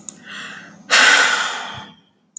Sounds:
Sigh